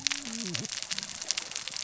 {"label": "biophony, cascading saw", "recorder": "SoundTrap 600 or HydroMoth"}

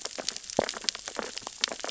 {"label": "biophony, sea urchins (Echinidae)", "recorder": "SoundTrap 600 or HydroMoth"}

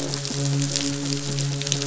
{"label": "biophony, midshipman", "recorder": "SoundTrap 500"}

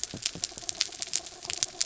{"label": "anthrophony, mechanical", "recorder": "SoundTrap 300"}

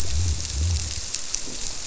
{"label": "biophony", "recorder": "SoundTrap 300"}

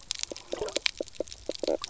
{"label": "biophony, knock croak", "recorder": "SoundTrap 300"}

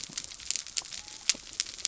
{"label": "biophony", "recorder": "SoundTrap 300"}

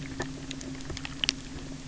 {"label": "anthrophony, boat engine", "recorder": "SoundTrap 300"}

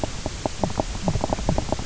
{"label": "biophony, knock croak", "recorder": "SoundTrap 300"}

